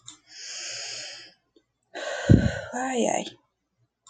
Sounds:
Sigh